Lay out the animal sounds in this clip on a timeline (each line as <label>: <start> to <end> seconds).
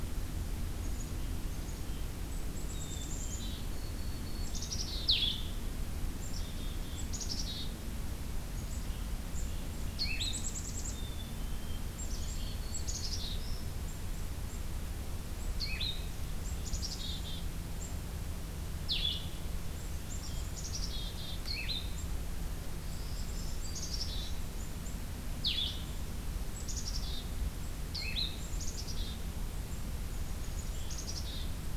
Black-capped Chickadee (Poecile atricapillus): 1.7 to 3.8 seconds
Black-throated Green Warbler (Setophaga virens): 3.7 to 4.8 seconds
Black-capped Chickadee (Poecile atricapillus): 4.3 to 5.2 seconds
Black-capped Chickadee (Poecile atricapillus): 6.0 to 8.3 seconds
Black-capped Chickadee (Poecile atricapillus): 10.2 to 13.7 seconds
Black-throated Green Warbler (Setophaga virens): 12.0 to 13.6 seconds
Black-capped Chickadee (Poecile atricapillus): 16.3 to 17.8 seconds
Blue-headed Vireo (Vireo solitarius): 18.5 to 19.5 seconds
Black-capped Chickadee (Poecile atricapillus): 20.1 to 21.5 seconds
Blue-headed Vireo (Vireo solitarius): 21.3 to 22.3 seconds
Black-throated Green Warbler (Setophaga virens): 22.8 to 24.0 seconds
Black-capped Chickadee (Poecile atricapillus): 23.6 to 24.5 seconds
Blue-headed Vireo (Vireo solitarius): 25.1 to 26.2 seconds
Black-capped Chickadee (Poecile atricapillus): 26.5 to 27.5 seconds
Black-capped Chickadee (Poecile atricapillus): 28.4 to 29.4 seconds
Black-capped Chickadee (Poecile atricapillus): 30.2 to 31.8 seconds